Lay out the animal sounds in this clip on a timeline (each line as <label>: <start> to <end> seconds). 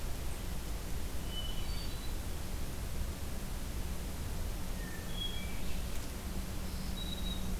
Red-eyed Vireo (Vireo olivaceus): 0.0 to 6.1 seconds
Hermit Thrush (Catharus guttatus): 1.2 to 2.2 seconds
Hermit Thrush (Catharus guttatus): 4.5 to 5.7 seconds
Black-throated Green Warbler (Setophaga virens): 6.5 to 7.6 seconds